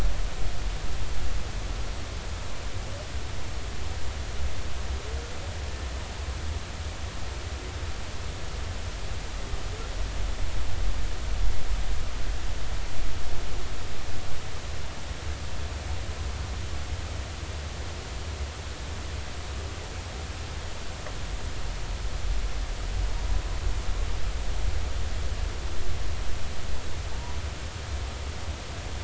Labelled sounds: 27.1	27.4	humpback whale, 0.83 to 1.0 kHz

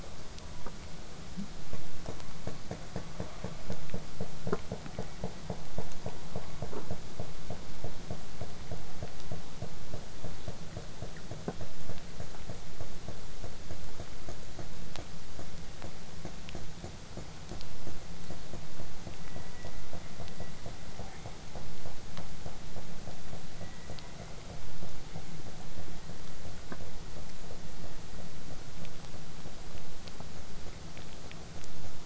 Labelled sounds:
21.1	21.3	killer whale, southern resident, 1.6 to 2.5 kHz
23.6	24.5	killer whale, southern resident, J pod, call S01, 0.89 to 2.6 kHz

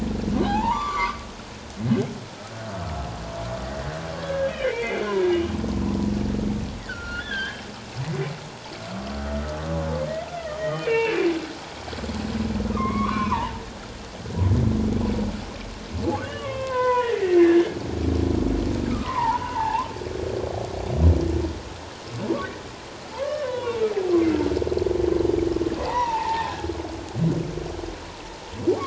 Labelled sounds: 0.4	1.2	humpback whale, 0.78 to 7.1 kHz
4.2	5.3	humpback whale, 0.91 to 3.2 kHz
6.8	8.3	humpback whale, 1.3 to 4.3 kHz
10.6	11.2	humpback whale, 1.8 to 3.2 kHz
12.7	13.6	humpback whale, 0.84 to 3.5 kHz
16.2	17.8	humpback whale, 0.91 to 3.6 kHz
18.9	19.9	humpback whale, 0.78 to 1.6 kHz
23.1	23.8	humpback whale, 0.84 to 3.0 kHz
25.8	26.6	humpback whale, 0.78 to 2.1 kHz

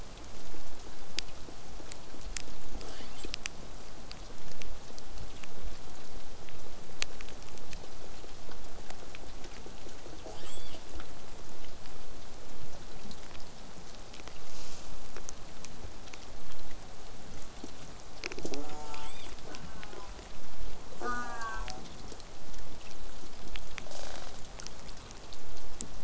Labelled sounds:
2.7	3.3	killer whale, southern resident, L pod, call S33, 0.19 to 8.0 kHz
3.8	8.8	vessel noise, 0 to 8.0 kHz
18.4	19.1	killer whale, southern resident, J pod, call S04, 0.04 to 8.0 kHz
19.5	20.2	killer whale, southern resident, J pod, call S04, 0.19 to 1.8 kHz
21.0	21.8	killer whale, southern resident, J pod, call S04, 0.12 to 8.0 kHz
23.9	24.3	killer whale, southern resident, rasp, 0.23 to 8.0 kHz

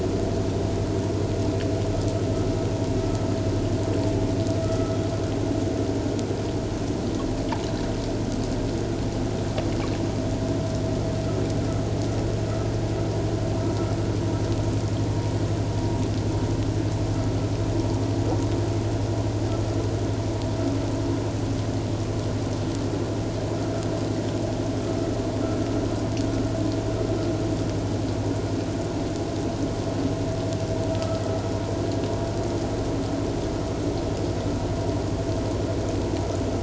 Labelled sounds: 4.6	4.9	vessel noise, 1.2 to 1.4 kHz
30.9	31.2	vessel noise, 1.2 to 1.4 kHz

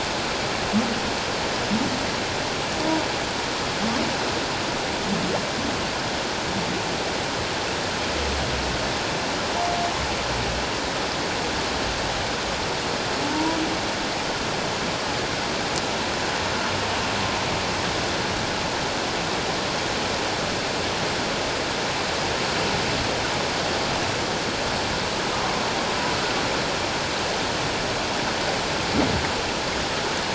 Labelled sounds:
13.3	13.6	humpback whale, 0.88 to 1.0 kHz

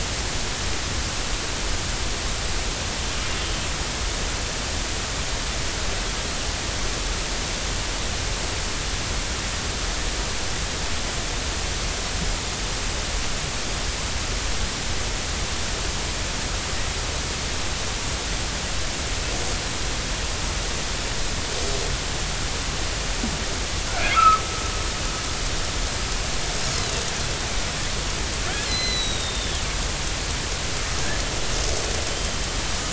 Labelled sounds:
24.1	24.4	killer whale, northern resident, G clan, 1.1 to 1.4 kHz
28.6	29.6	killer whale, northern resident, G clan, 1.9 to 6.2 kHz

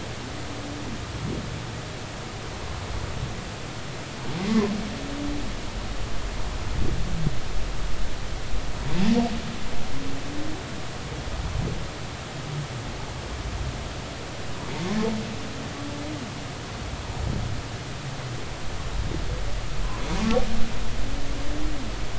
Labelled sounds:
4.4	4.7	humpback whale, 0.96 to 2.2 kHz

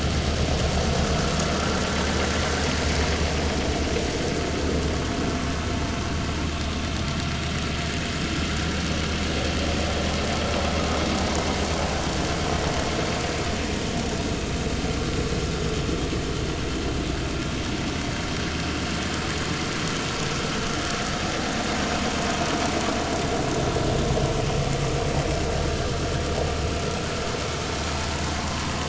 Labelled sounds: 28.3	28.7	vessel noise, 0.83 to 1.2 kHz

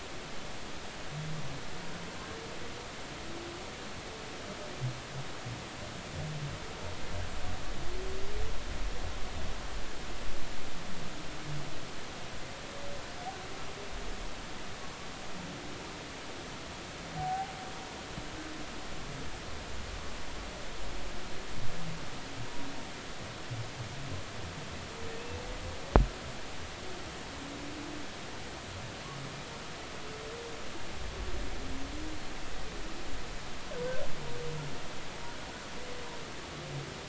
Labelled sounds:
17.2	17.5	humpback whale, 0.80 to 0.93 kHz

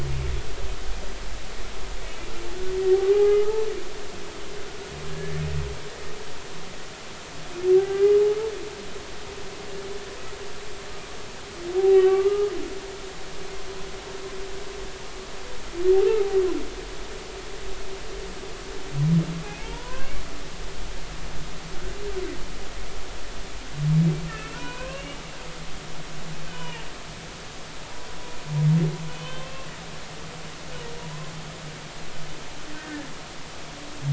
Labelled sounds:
2.9	3.6	humpback whale, 0.80 to 2.1 kHz
5.1	5.3	humpback whale, 1.6 to 1.8 kHz
7.8	8.1	humpback whale, 1.5 to 1.7 kHz
11.8	12.5	humpback whale, 0.80 to 2.8 kHz
16.0	16.3	humpback whale, 1.2 to 1.4 kHz
19.4	20.1	humpback whale, 0.80 to 3.5 kHz
24.3	25.2	humpback whale, 0.93 to 2.9 kHz
26.5	26.8	humpback whale, 0.83 to 3.1 kHz
29.1	29.7	humpback whale, 0.99 to 3.2 kHz
32.8	33.1	humpback whale, 1.7 to 1.9 kHz

